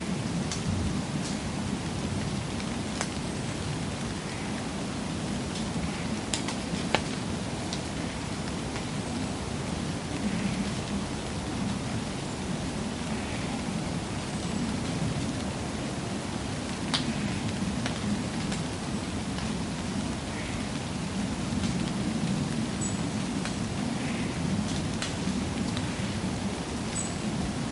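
Ambient rain falling in a forest. 0.0 - 27.7
Rain hits leaves and wood in a forest. 0.0 - 27.7

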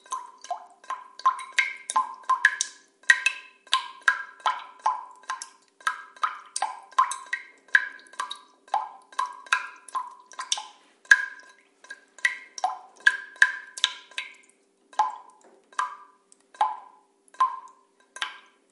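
Water droplets are dripping. 0.0 - 18.7

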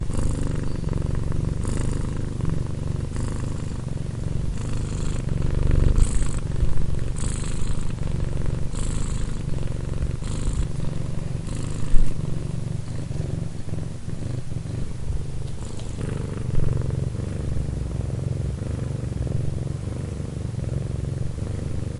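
A cat purrs loudly in a rhythmic pattern. 0.0 - 22.0
A bird chirps softly. 9.1 - 9.8

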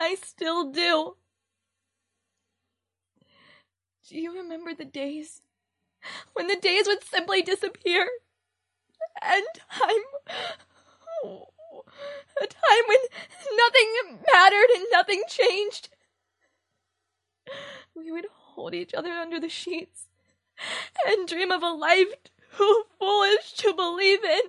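A woman speaking in a weeping voice. 0.0 - 1.3
A woman speaks in a sad and crying voice. 4.1 - 10.6
An emotional woman sighs and weeps. 10.3 - 12.4
A woman speaks in a crying, upset, and sad voice. 12.5 - 16.0
A woman is speaking emotionally, expressing sadness. 17.6 - 24.5

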